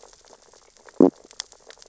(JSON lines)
{"label": "biophony, sea urchins (Echinidae)", "recorder": "SoundTrap 600 or HydroMoth"}